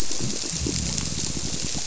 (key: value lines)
label: biophony
recorder: SoundTrap 300